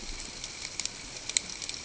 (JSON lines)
{"label": "ambient", "recorder": "HydroMoth"}